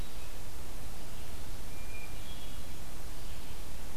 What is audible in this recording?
Red-eyed Vireo, Hermit Thrush